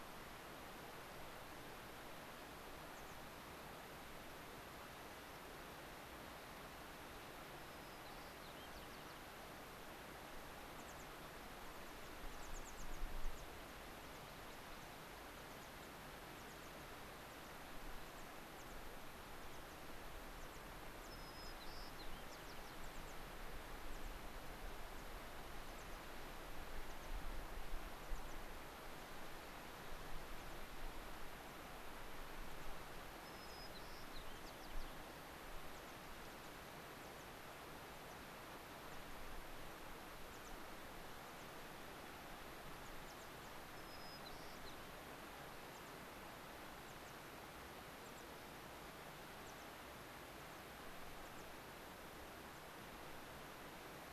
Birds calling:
American Pipit (Anthus rubescens), White-crowned Sparrow (Zonotrichia leucophrys)

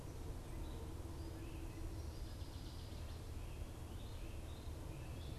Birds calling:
Northern Waterthrush (Parkesia noveboracensis), Great Crested Flycatcher (Myiarchus crinitus)

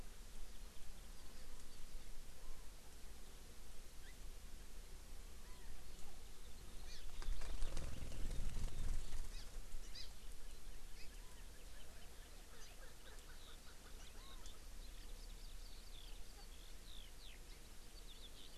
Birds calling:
Chinese Hwamei (Garrulax canorus), Hawaii Amakihi (Chlorodrepanis virens), Erckel's Francolin (Pternistis erckelii), Eurasian Skylark (Alauda arvensis)

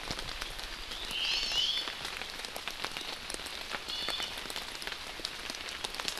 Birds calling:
Hawaii Amakihi (Chlorodrepanis virens), Omao (Myadestes obscurus), Iiwi (Drepanis coccinea)

